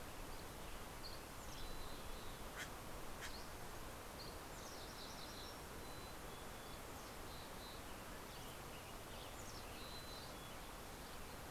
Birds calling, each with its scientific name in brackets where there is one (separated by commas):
Dusky Flycatcher (Empidonax oberholseri), Common Raven (Corvus corax), Western Tanager (Piranga ludoviciana), MacGillivray's Warbler (Geothlypis tolmiei), Mountain Quail (Oreortyx pictus), Mountain Chickadee (Poecile gambeli)